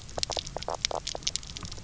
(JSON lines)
{"label": "biophony, knock croak", "recorder": "SoundTrap 300"}